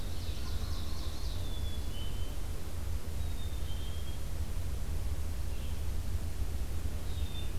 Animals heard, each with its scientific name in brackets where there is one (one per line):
Red-eyed Vireo (Vireo olivaceus)
Ovenbird (Seiurus aurocapilla)
Black-capped Chickadee (Poecile atricapillus)